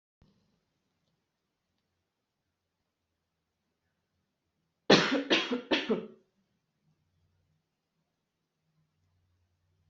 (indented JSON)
{
  "expert_labels": [
    {
      "quality": "good",
      "cough_type": "dry",
      "dyspnea": false,
      "wheezing": false,
      "stridor": false,
      "choking": false,
      "congestion": false,
      "nothing": true,
      "diagnosis": "healthy cough",
      "severity": "pseudocough/healthy cough"
    }
  ],
  "age": 22,
  "gender": "female",
  "respiratory_condition": false,
  "fever_muscle_pain": true,
  "status": "symptomatic"
}